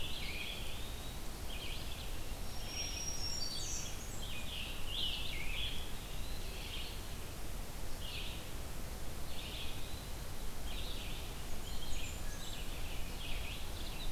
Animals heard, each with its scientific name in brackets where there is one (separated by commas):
Red-eyed Vireo (Vireo olivaceus), Blackburnian Warbler (Setophaga fusca), Eastern Wood-Pewee (Contopus virens)